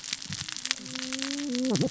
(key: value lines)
label: biophony, cascading saw
recorder: SoundTrap 600 or HydroMoth